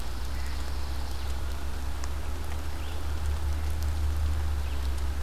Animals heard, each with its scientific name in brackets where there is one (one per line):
Red-eyed Vireo (Vireo olivaceus)
Pine Warbler (Setophaga pinus)